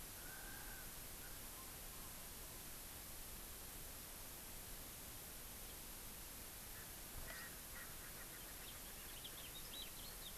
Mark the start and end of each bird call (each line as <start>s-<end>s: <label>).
0.0s-1.7s: Erckel's Francolin (Pternistis erckelii)
6.6s-8.9s: Erckel's Francolin (Pternistis erckelii)
8.5s-10.3s: House Finch (Haemorhous mexicanus)